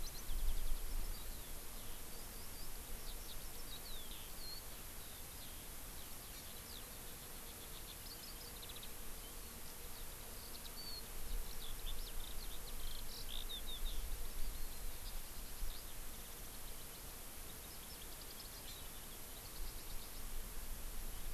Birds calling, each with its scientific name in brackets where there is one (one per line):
Eurasian Skylark (Alauda arvensis)
Hawaii Amakihi (Chlorodrepanis virens)